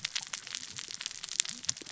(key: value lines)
label: biophony, cascading saw
recorder: SoundTrap 600 or HydroMoth